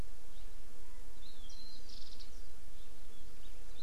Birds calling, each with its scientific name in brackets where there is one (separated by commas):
Hawaii Amakihi (Chlorodrepanis virens), Warbling White-eye (Zosterops japonicus)